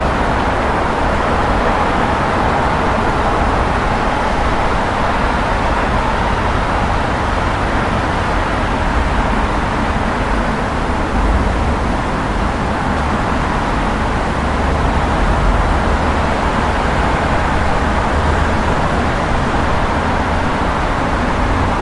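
Ocean waves roaring. 0:00.1 - 0:21.8

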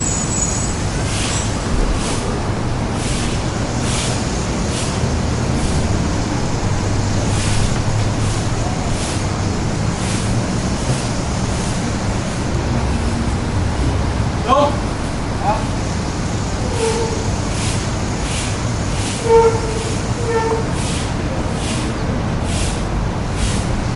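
Repeated sweeping sounds with loud traffic in the background. 0:00.0 - 0:23.9

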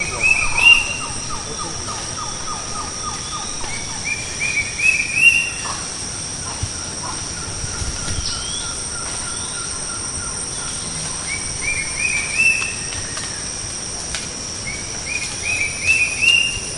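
Tropical birds calling and tweeting. 0:00.0 - 0:16.8

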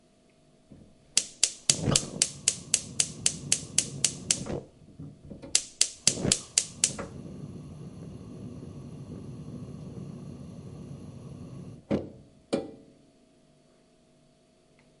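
A gas stove clicks loudly and repeatedly as it is being turned on. 0:01.0 - 0:04.9
A flame ignites and then suddenly extinguishes nearby. 0:01.2 - 0:04.6
A gas stove is clicking repeatedly and loudly. 0:05.6 - 0:08.0
A flame ignites suddenly and burns steadily nearby. 0:06.1 - 0:12.8
A flame is suddenly extinguished nearby. 0:11.5 - 0:12.4
A pot is being placed on a stove. 0:12.4 - 0:12.9

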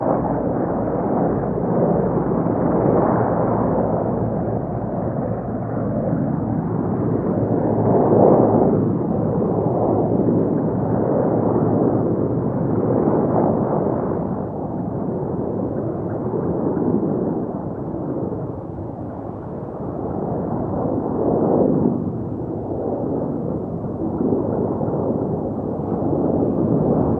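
A plane is flying far away with a deep mechanical noise. 0:00.0 - 0:27.2
A high-pitched rhythmic chirping. 0:15.7 - 0:17.5
A high-pitched rhythmic chirping. 0:23.9 - 0:25.6

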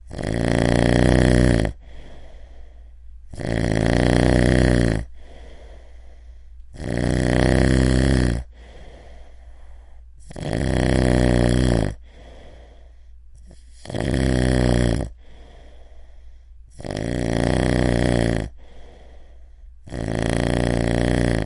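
A man snores heavily and repeatedly while sleeping. 0:00.0 - 0:21.5

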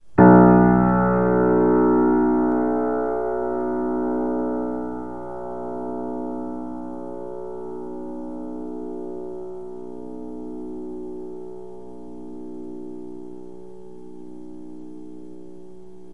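A low piano note is struck softly and slowly fades away. 0:00.0 - 0:16.1

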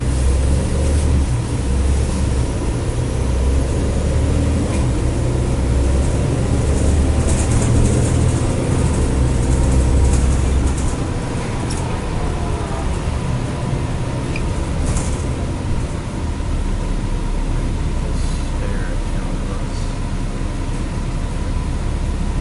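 A constant low engine hum and subtle road noise steadily echo inside a moving bus. 0:00.0 - 0:22.4
A person is speaking softly and slowly. 0:18.2 - 0:20.5

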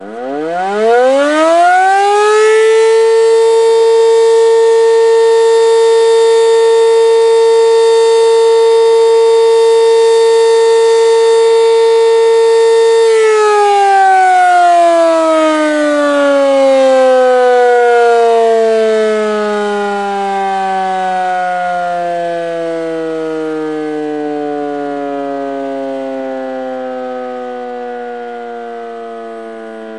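A motorbike accelerates rapidly as the sound grows louder. 0:00.0 - 0:13.1
A motorbike slows down, and the sound fades into the background. 0:13.2 - 0:30.0

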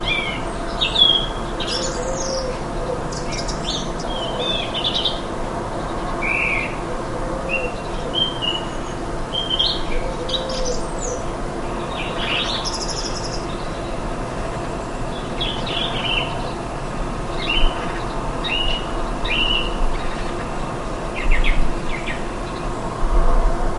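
A bird is singing. 0:00.0 - 0:02.0
An owl hoots. 0:02.1 - 0:03.4
Birds singing and an owl hooting. 0:03.4 - 0:14.4
A bird is singing. 0:14.5 - 0:23.8

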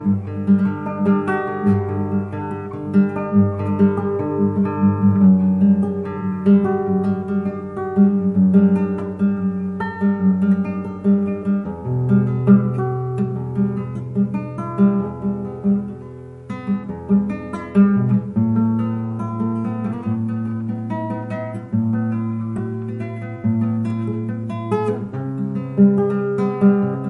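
A bright nylon guitar is playing softly in a quiet room. 0:00.0 - 0:27.1

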